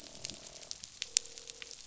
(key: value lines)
label: biophony, croak
recorder: SoundTrap 500